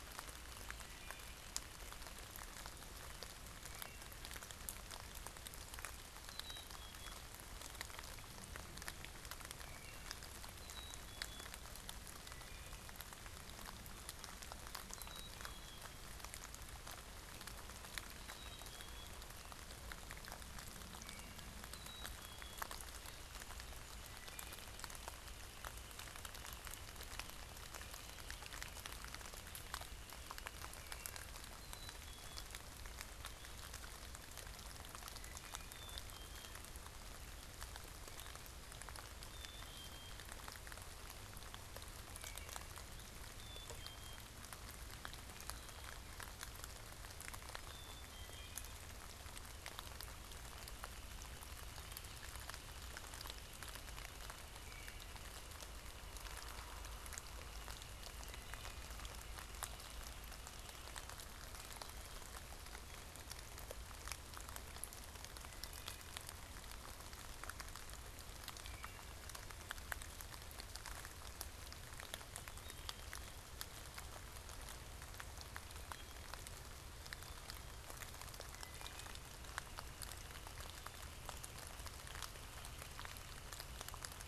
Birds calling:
Wood Thrush (Hylocichla mustelina), Black-capped Chickadee (Poecile atricapillus), Northern Flicker (Colaptes auratus)

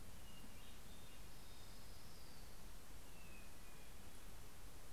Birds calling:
Hermit Thrush (Catharus guttatus), Orange-crowned Warbler (Leiothlypis celata)

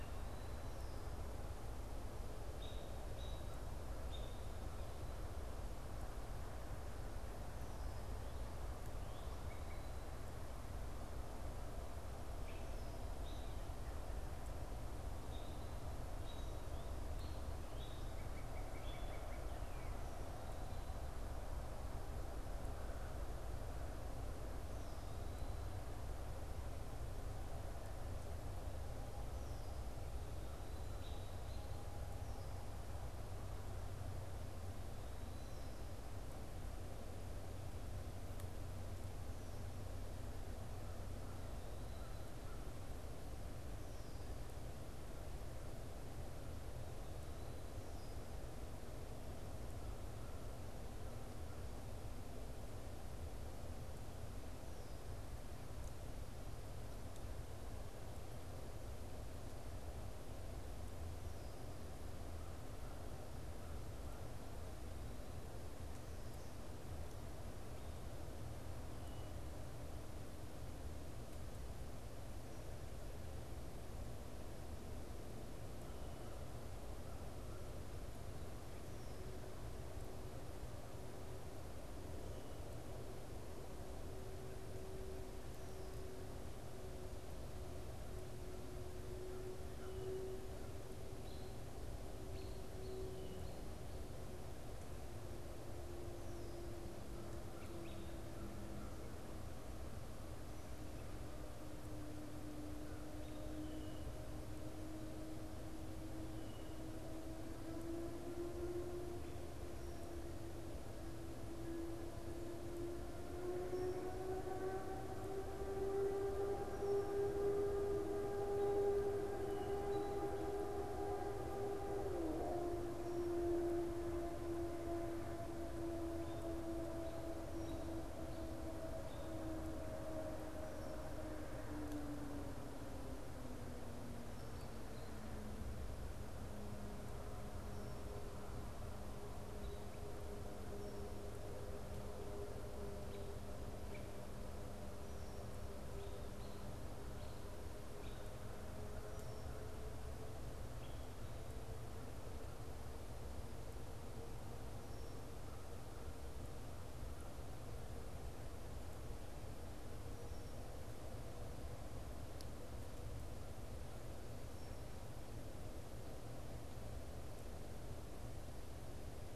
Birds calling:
American Robin (Turdus migratorius), American Crow (Corvus brachyrhynchos), unidentified bird, Red-winged Blackbird (Agelaius phoeniceus), Northern Cardinal (Cardinalis cardinalis)

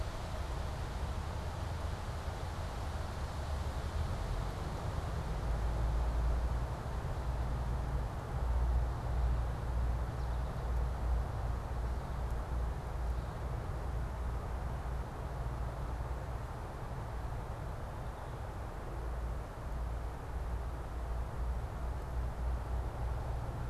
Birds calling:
American Goldfinch (Spinus tristis)

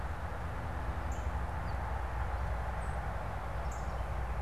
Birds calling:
Northern Cardinal (Cardinalis cardinalis), Song Sparrow (Melospiza melodia)

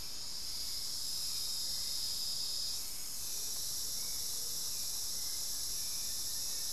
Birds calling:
Hauxwell's Thrush (Turdus hauxwelli), Buff-throated Woodcreeper (Xiphorhynchus guttatus), Speckled Chachalaca (Ortalis guttata), Amazonian Motmot (Momotus momota)

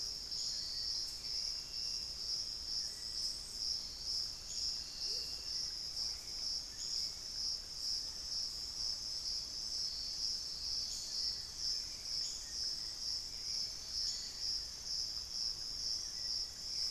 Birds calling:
Amazonian Motmot (Momotus momota), Hauxwell's Thrush (Turdus hauxwelli)

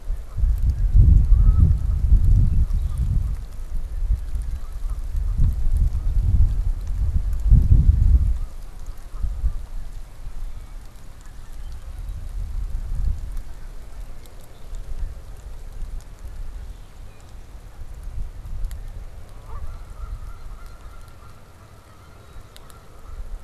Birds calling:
Red-winged Blackbird (Agelaius phoeniceus), Canada Goose (Branta canadensis)

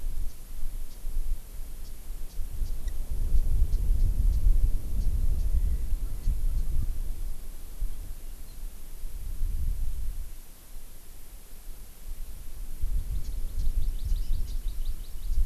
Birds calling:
Hawaii Amakihi (Chlorodrepanis virens), Japanese Bush Warbler (Horornis diphone)

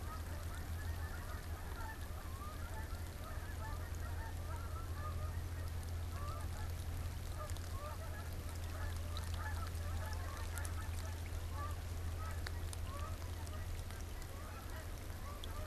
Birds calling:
Snow Goose (Anser caerulescens), Canada Goose (Branta canadensis)

